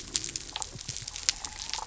{"label": "biophony", "recorder": "SoundTrap 300"}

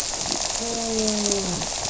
{"label": "biophony", "recorder": "SoundTrap 300"}
{"label": "biophony, grouper", "recorder": "SoundTrap 300"}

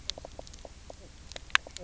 {"label": "biophony, knock croak", "recorder": "SoundTrap 300"}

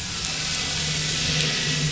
{"label": "anthrophony, boat engine", "recorder": "SoundTrap 500"}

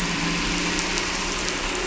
{"label": "anthrophony, boat engine", "recorder": "SoundTrap 300"}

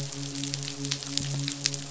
{"label": "biophony, midshipman", "recorder": "SoundTrap 500"}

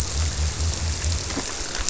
{"label": "biophony", "recorder": "SoundTrap 300"}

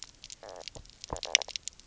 {"label": "biophony, knock croak", "recorder": "SoundTrap 300"}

